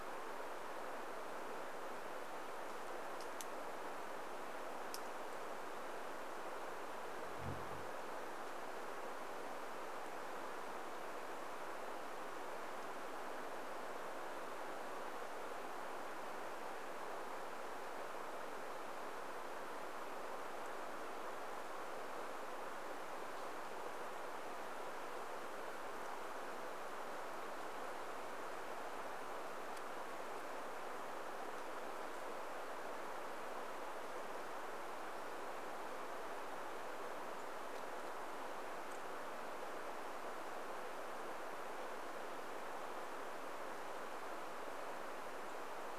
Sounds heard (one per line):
bird wingbeats